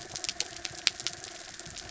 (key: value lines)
label: anthrophony, mechanical
recorder: SoundTrap 300